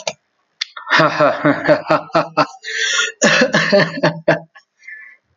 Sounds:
Laughter